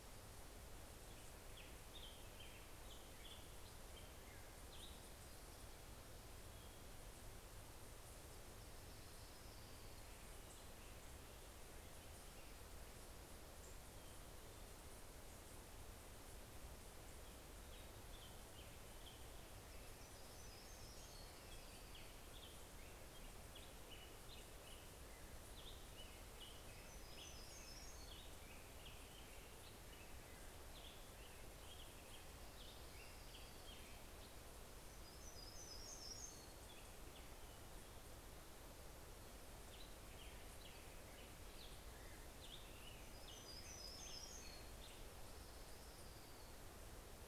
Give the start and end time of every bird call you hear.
[7.69, 10.49] Orange-crowned Warbler (Leiothlypis celata)
[17.19, 34.69] Black-headed Grosbeak (Pheucticus melanocephalus)
[19.39, 21.69] Hermit Warbler (Setophaga occidentalis)
[20.49, 22.79] Orange-crowned Warbler (Leiothlypis celata)
[26.39, 28.59] Hermit Warbler (Setophaga occidentalis)
[31.99, 34.29] Orange-crowned Warbler (Leiothlypis celata)
[34.59, 37.19] Hermit Warbler (Setophaga occidentalis)
[36.09, 45.59] Black-headed Grosbeak (Pheucticus melanocephalus)
[42.59, 45.59] Hermit Warbler (Setophaga occidentalis)
[45.09, 47.19] Orange-crowned Warbler (Leiothlypis celata)

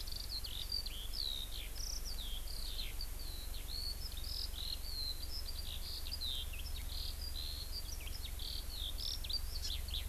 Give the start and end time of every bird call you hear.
[0.00, 10.08] Eurasian Skylark (Alauda arvensis)
[9.65, 9.75] Hawaii Amakihi (Chlorodrepanis virens)

